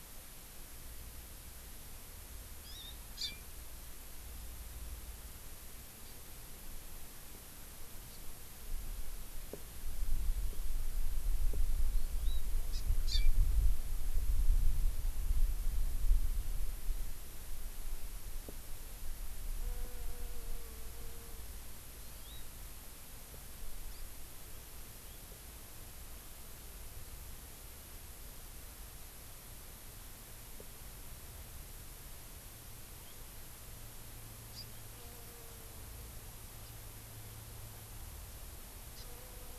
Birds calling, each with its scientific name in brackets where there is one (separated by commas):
Hawaii Amakihi (Chlorodrepanis virens), House Finch (Haemorhous mexicanus)